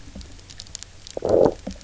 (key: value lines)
label: biophony, low growl
recorder: SoundTrap 300